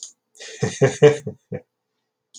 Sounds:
Laughter